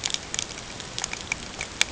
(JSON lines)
{"label": "ambient", "recorder": "HydroMoth"}